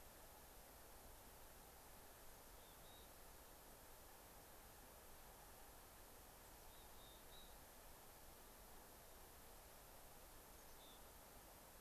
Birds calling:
Mountain Chickadee (Poecile gambeli)

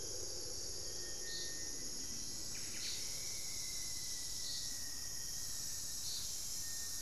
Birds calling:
Buff-breasted Wren (Cantorchilus leucotis)
Rufous-fronted Antthrush (Formicarius rufifrons)

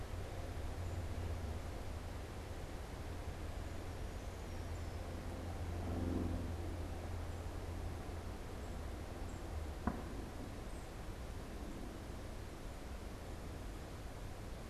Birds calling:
Brown Creeper (Certhia americana)

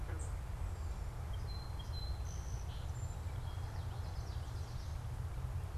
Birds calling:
Song Sparrow (Melospiza melodia)
unidentified bird
Common Yellowthroat (Geothlypis trichas)

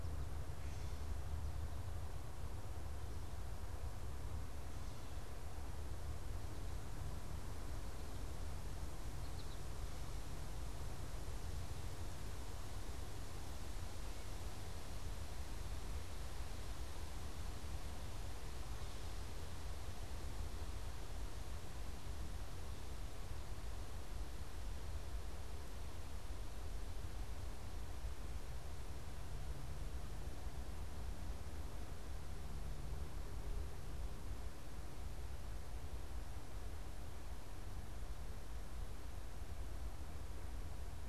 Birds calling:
American Goldfinch (Spinus tristis)

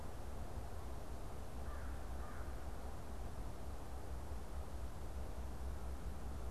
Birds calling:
American Crow (Corvus brachyrhynchos)

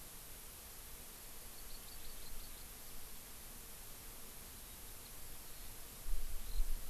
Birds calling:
Hawaii Amakihi (Chlorodrepanis virens)
Eurasian Skylark (Alauda arvensis)

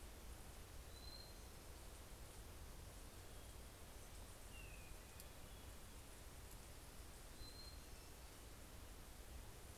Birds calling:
Hermit Thrush (Catharus guttatus)

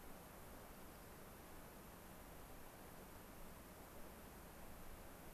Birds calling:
Dark-eyed Junco (Junco hyemalis)

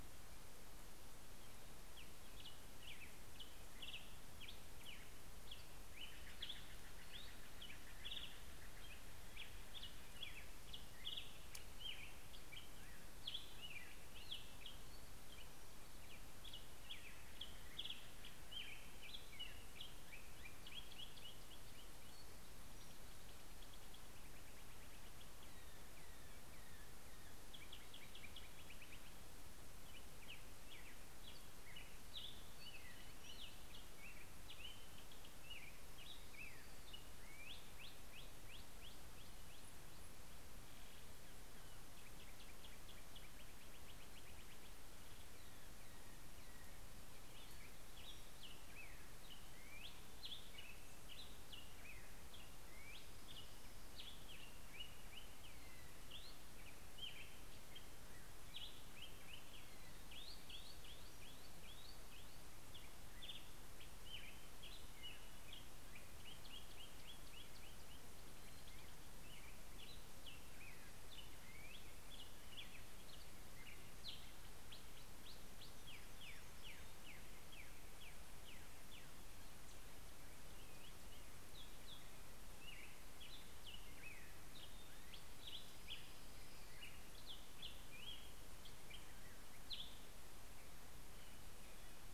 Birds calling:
Steller's Jay (Cyanocitta stelleri)
Hermit Warbler (Setophaga occidentalis)
Black-headed Grosbeak (Pheucticus melanocephalus)

